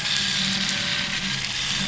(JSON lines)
{"label": "anthrophony, boat engine", "recorder": "SoundTrap 500"}